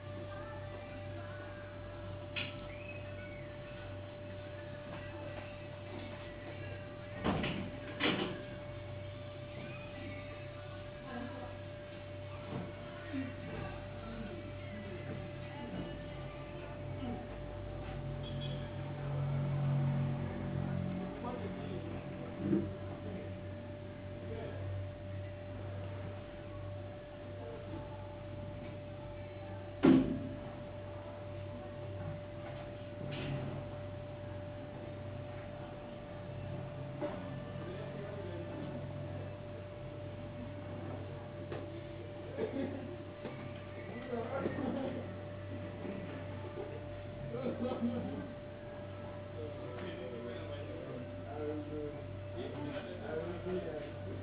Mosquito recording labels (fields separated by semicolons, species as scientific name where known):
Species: no mosquito; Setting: insect culture